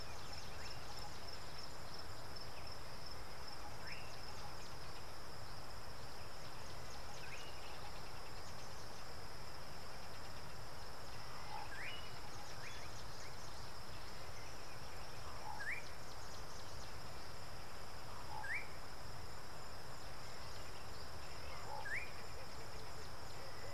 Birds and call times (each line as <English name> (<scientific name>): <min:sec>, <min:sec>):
Slate-colored Boubou (Laniarius funebris): 0:11.9, 0:18.6